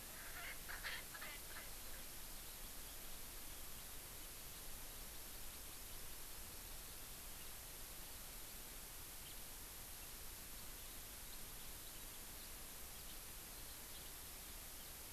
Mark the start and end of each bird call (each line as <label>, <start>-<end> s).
Erckel's Francolin (Pternistis erckelii), 0.0-2.1 s
Hawaii Amakihi (Chlorodrepanis virens), 4.9-6.5 s
House Finch (Haemorhous mexicanus), 9.2-9.4 s
House Finch (Haemorhous mexicanus), 12.3-12.5 s
House Finch (Haemorhous mexicanus), 13.0-13.2 s
House Finch (Haemorhous mexicanus), 13.9-14.0 s